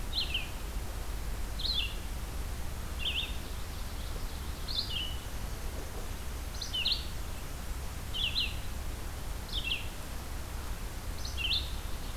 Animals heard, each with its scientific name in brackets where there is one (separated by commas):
Common Yellowthroat (Geothlypis trichas), Red-eyed Vireo (Vireo olivaceus)